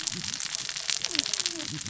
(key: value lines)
label: biophony, cascading saw
recorder: SoundTrap 600 or HydroMoth